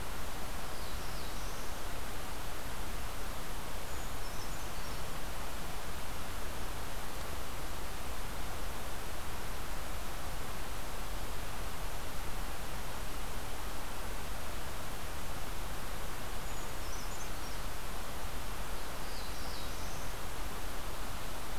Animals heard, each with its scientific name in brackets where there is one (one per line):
Brown Creeper (Certhia americana)
Black-throated Blue Warbler (Setophaga caerulescens)